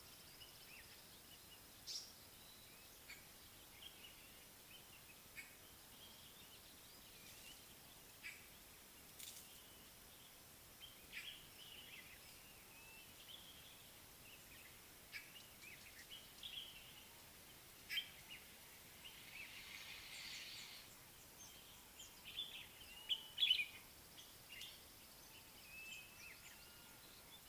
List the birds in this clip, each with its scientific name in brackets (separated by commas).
Blue-naped Mousebird (Urocolius macrourus), Common Bulbul (Pycnonotus barbatus), White-bellied Go-away-bird (Corythaixoides leucogaster), African Paradise-Flycatcher (Terpsiphone viridis)